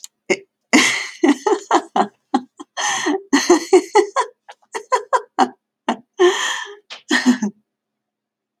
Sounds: Laughter